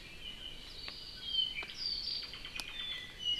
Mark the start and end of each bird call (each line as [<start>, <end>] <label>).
[0.00, 3.39] Apapane (Himatione sanguinea)